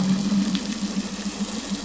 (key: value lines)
label: anthrophony, boat engine
recorder: SoundTrap 500